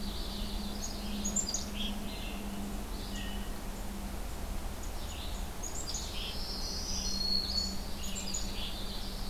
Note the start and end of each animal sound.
0.0s-1.1s: Yellow-rumped Warbler (Setophaga coronata)
0.0s-9.3s: Red-eyed Vireo (Vireo olivaceus)
1.2s-1.9s: Black-capped Chickadee (Poecile atricapillus)
3.1s-3.6s: Hermit Thrush (Catharus guttatus)
5.0s-6.3s: Black-capped Chickadee (Poecile atricapillus)
6.0s-7.8s: Black-throated Green Warbler (Setophaga virens)
8.0s-8.8s: Black-capped Chickadee (Poecile atricapillus)
8.1s-9.3s: Yellow-rumped Warbler (Setophaga coronata)

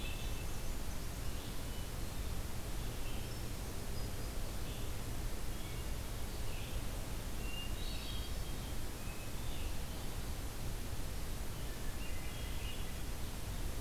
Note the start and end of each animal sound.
0.0s-13.8s: Red-eyed Vireo (Vireo olivaceus)
7.2s-8.7s: Hermit Thrush (Catharus guttatus)
11.7s-13.3s: Hermit Thrush (Catharus guttatus)

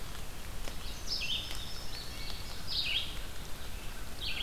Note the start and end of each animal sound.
0.8s-4.4s: Red-eyed Vireo (Vireo olivaceus)
1.1s-2.5s: Indigo Bunting (Passerina cyanea)
1.9s-2.6s: Wood Thrush (Hylocichla mustelina)
2.6s-4.4s: American Crow (Corvus brachyrhynchos)

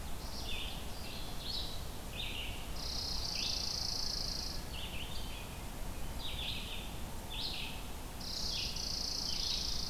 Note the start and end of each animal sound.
0.0s-9.9s: Red-eyed Vireo (Vireo olivaceus)
2.7s-4.6s: Chipping Sparrow (Spizella passerina)
8.2s-9.9s: Chipping Sparrow (Spizella passerina)

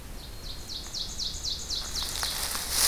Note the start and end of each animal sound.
0.0s-2.9s: Ovenbird (Seiurus aurocapilla)

